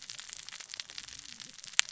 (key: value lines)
label: biophony, cascading saw
recorder: SoundTrap 600 or HydroMoth